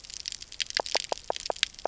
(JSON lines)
{"label": "biophony, knock croak", "recorder": "SoundTrap 300"}